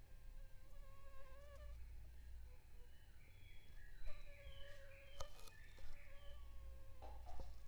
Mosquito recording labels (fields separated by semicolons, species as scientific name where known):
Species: Anopheles funestus s.l.; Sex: female; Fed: unfed; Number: one; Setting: cup